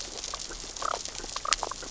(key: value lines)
label: biophony, damselfish
recorder: SoundTrap 600 or HydroMoth